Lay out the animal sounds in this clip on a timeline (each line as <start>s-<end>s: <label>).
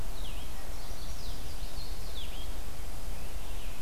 0.1s-3.8s: Blue-headed Vireo (Vireo solitarius)
0.5s-1.5s: Chestnut-sided Warbler (Setophaga pensylvanica)